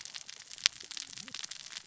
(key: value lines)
label: biophony, cascading saw
recorder: SoundTrap 600 or HydroMoth